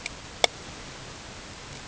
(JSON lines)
{"label": "ambient", "recorder": "HydroMoth"}